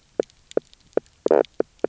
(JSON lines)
{"label": "biophony, knock croak", "recorder": "SoundTrap 300"}